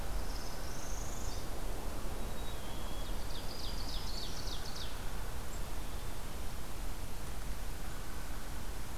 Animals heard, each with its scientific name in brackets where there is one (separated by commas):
Black-capped Chickadee (Poecile atricapillus), Ovenbird (Seiurus aurocapilla), Northern Parula (Setophaga americana), Black-throated Green Warbler (Setophaga virens)